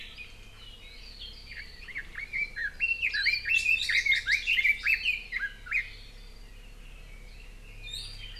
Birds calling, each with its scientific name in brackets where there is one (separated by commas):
Hawaii Creeper (Loxops mana), Iiwi (Drepanis coccinea), Red-billed Leiothrix (Leiothrix lutea)